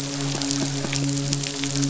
{"label": "biophony", "recorder": "SoundTrap 500"}
{"label": "biophony, midshipman", "recorder": "SoundTrap 500"}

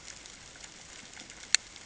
{"label": "ambient", "recorder": "HydroMoth"}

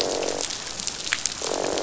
{"label": "biophony, croak", "recorder": "SoundTrap 500"}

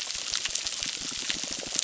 {"label": "biophony, crackle", "recorder": "SoundTrap 600"}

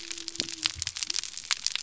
{"label": "biophony", "recorder": "SoundTrap 300"}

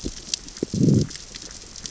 {"label": "biophony, growl", "recorder": "SoundTrap 600 or HydroMoth"}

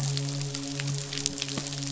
{"label": "biophony, midshipman", "recorder": "SoundTrap 500"}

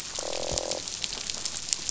{"label": "biophony, croak", "recorder": "SoundTrap 500"}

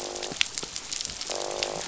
{"label": "biophony, croak", "recorder": "SoundTrap 500"}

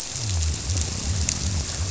{"label": "biophony", "recorder": "SoundTrap 300"}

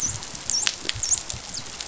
{"label": "biophony, dolphin", "recorder": "SoundTrap 500"}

